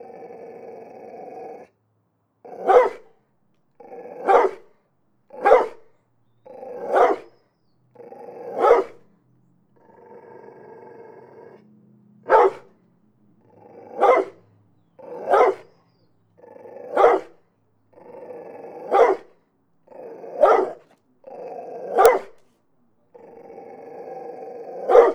Is the animal happy?
no